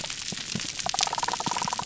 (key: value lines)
label: biophony
recorder: SoundTrap 300